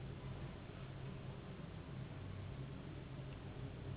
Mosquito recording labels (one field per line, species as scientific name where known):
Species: Anopheles gambiae s.s.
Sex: female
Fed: unfed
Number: one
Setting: insect culture